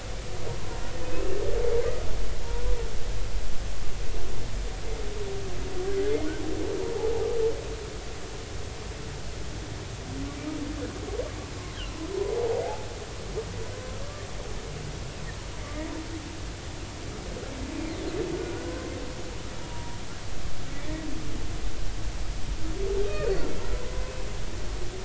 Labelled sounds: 1.0	1.4	humpback whale, 2.5 to 2.8 kHz
11.7	12.0	humpback whale, 2.6 to 3.4 kHz
14.0	14.2	humpback whale, 1.1 to 1.2 kHz
15.6	15.9	humpback whale, 1.9 to 2.2 kHz
18.3	18.9	humpback whale, 1.4 to 1.6 kHz
19.7	20.0	humpback whale, 0.90 to 1.1 kHz
23.0	24.1	humpback whale, 0.96 to 2.6 kHz

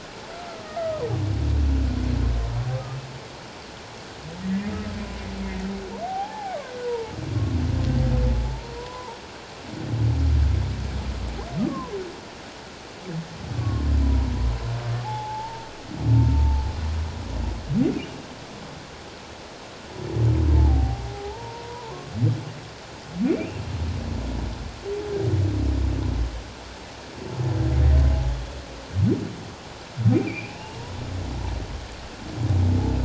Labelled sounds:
2.7	3.0	humpback whale, 1.1 to 1.3 kHz
6.0	7.2	humpback whale, 0.78 to 1.1 kHz
8.3	9.2	humpback whale, 0.81 to 1.1 kHz
11.6	11.9	humpback whale, 0.94 to 1.3 kHz
13.6	14.3	humpback whale, 0.94 to 1.2 kHz
15.0	15.7	humpback whale, 0.78 to 0.97 kHz
16.3	16.6	humpback whale, 0.84 to 0.94 kHz
20.6	21.9	humpback whale, 0.78 to 1.0 kHz
23.2	23.6	humpback whale, 2.2 to 2.6 kHz
30.1	30.9	humpback whale, 0.84 to 2.7 kHz

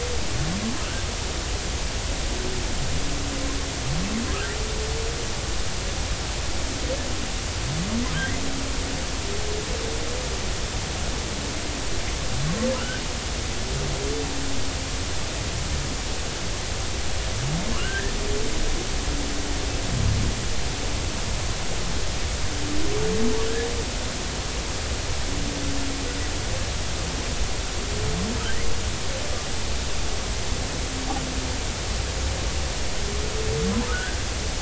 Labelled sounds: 12.8	13.0	humpback whale, 1.2 to 1.7 kHz
17.7	18.1	humpback whale, 0.99 to 1.9 kHz
33.9	34.2	humpback whale, 1.2 to 1.8 kHz

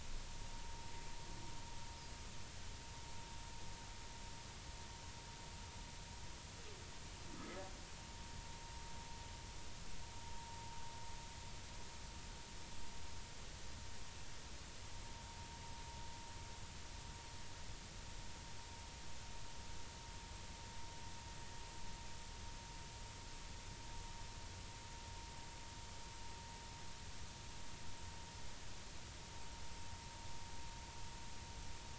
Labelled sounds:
7.4	7.6	humpback whale, 1.2 to 1.3 kHz

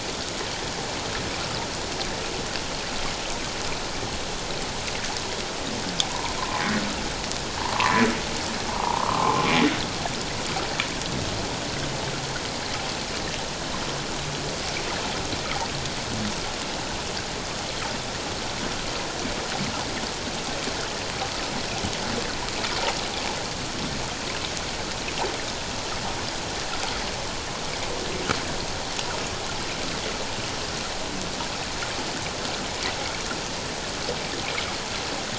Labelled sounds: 6.1	6.6	humpback whale, 0.91 to 1.1 kHz
7.7	9.4	humpback whale, 0.78 to 1.3 kHz

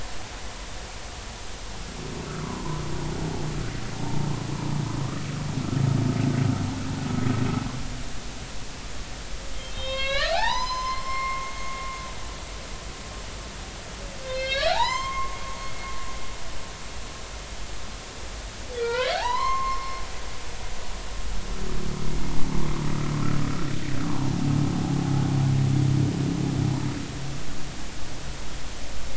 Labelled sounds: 2.4	2.8	humpback whale, 0.90 to 1.2 kHz
4.0	4.3	humpback whale, 0.80 to 0.96 kHz
9.5	11.7	humpback whale, 0.80 to 6.4 kHz
14.2	15.4	humpback whale, 0.80 to 7.5 kHz
18.8	20.0	humpback whale, 0.80 to 4.3 kHz
24.0	24.4	humpback whale, 0.80 to 1.2 kHz

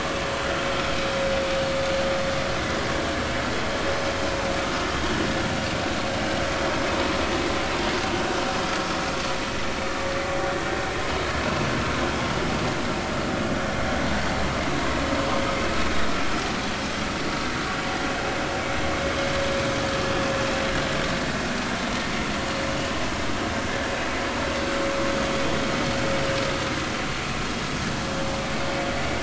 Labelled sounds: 4.9	5.2	vessel noise, 3.2 to 3.3 kHz

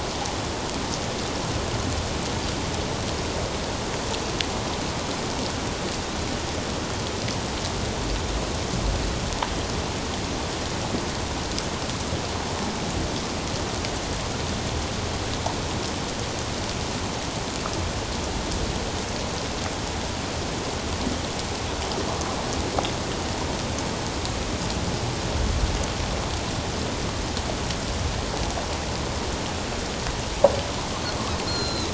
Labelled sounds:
31.5	31.9	Pacific white-sided dolphin, 1.3 to 7.1 kHz

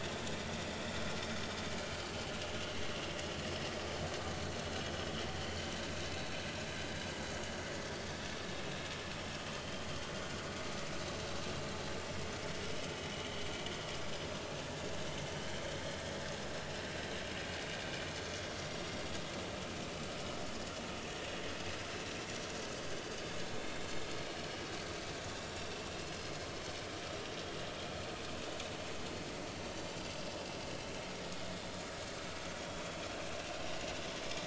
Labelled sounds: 7.8	8.1	vessel noise, 4.7 to 4.8 kHz
9.6	9.8	vessel noise, 3.0 to 3.3 kHz
14.3	14.6	vessel noise, 2.6 to 2.8 kHz

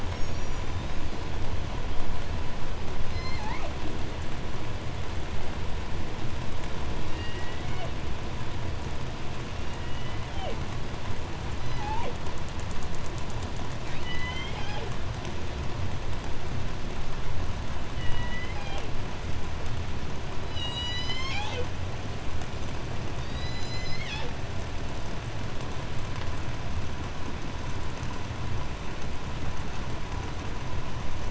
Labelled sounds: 0.0	1.6	killer whale, 0.82 to 8.0 kHz
3.0	3.8	killer whale, 0.19 to 8.0 kHz
6.9	8.0	killer whale, southern resident, J pod, call S01, 0.19 to 7.4 kHz
9.2	10.8	killer whale, southern resident, J pod, call S01, 0.13 to 7.3 kHz
11.4	12.3	killer whale, southern resident, J pod, call S01, 0.22 to 7.4 kHz
13.8	15.1	killer whale, southern resident, J pod, call S01, 0.22 to 6.9 kHz
17.9	18.9	killer whale, southern resident, J pod, call S01, 0.24 to 7.7 kHz
20.2	21.9	killer whale, southern resident, J pod, call S01, 0.26 to 8.0 kHz
23.1	24.5	killer whale, southern resident, J pod, call S01, 0.24 to 8.0 kHz

